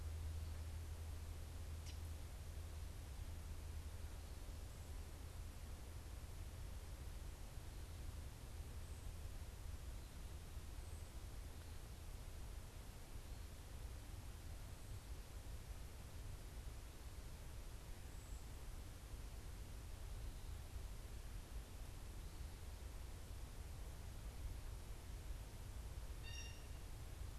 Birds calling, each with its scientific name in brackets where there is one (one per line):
Blue Jay (Cyanocitta cristata)